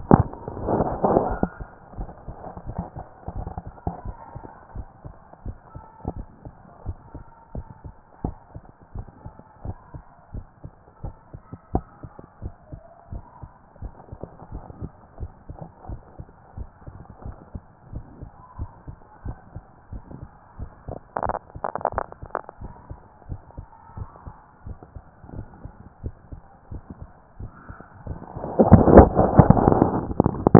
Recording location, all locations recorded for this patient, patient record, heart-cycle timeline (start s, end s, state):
tricuspid valve (TV)
pulmonary valve (PV)+tricuspid valve (TV)+mitral valve (MV)
#Age: nan
#Sex: Female
#Height: nan
#Weight: nan
#Pregnancy status: True
#Murmur: Absent
#Murmur locations: nan
#Most audible location: nan
#Systolic murmur timing: nan
#Systolic murmur shape: nan
#Systolic murmur grading: nan
#Systolic murmur pitch: nan
#Systolic murmur quality: nan
#Diastolic murmur timing: nan
#Diastolic murmur shape: nan
#Diastolic murmur grading: nan
#Diastolic murmur pitch: nan
#Diastolic murmur quality: nan
#Outcome: Normal
#Campaign: 2014 screening campaign
0.00	6.86	unannotated
6.86	6.96	S1
6.96	7.14	systole
7.14	7.24	S2
7.24	7.54	diastole
7.54	7.66	S1
7.66	7.84	systole
7.84	7.94	S2
7.94	8.24	diastole
8.24	8.36	S1
8.36	8.54	systole
8.54	8.64	S2
8.64	8.94	diastole
8.94	9.06	S1
9.06	9.24	systole
9.24	9.34	S2
9.34	9.64	diastole
9.64	9.76	S1
9.76	9.94	systole
9.94	10.04	S2
10.04	10.34	diastole
10.34	10.44	S1
10.44	10.64	systole
10.64	10.74	S2
10.74	11.02	diastole
11.02	11.14	S1
11.14	11.32	systole
11.32	11.42	S2
11.42	11.74	diastole
11.74	11.84	S1
11.84	12.02	systole
12.02	12.12	S2
12.12	12.42	diastole
12.42	12.54	S1
12.54	12.72	systole
12.72	12.82	S2
12.82	13.12	diastole
13.12	13.22	S1
13.22	13.42	systole
13.42	13.52	S2
13.52	13.82	diastole
13.82	30.59	unannotated